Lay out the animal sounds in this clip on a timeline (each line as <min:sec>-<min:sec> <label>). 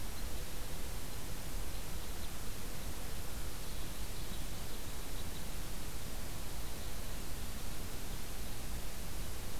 0:00.0-0:08.3 Red Crossbill (Loxia curvirostra)